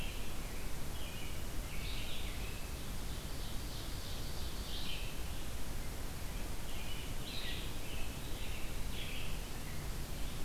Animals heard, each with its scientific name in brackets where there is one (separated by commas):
Ovenbird (Seiurus aurocapilla), Red-eyed Vireo (Vireo olivaceus), American Robin (Turdus migratorius)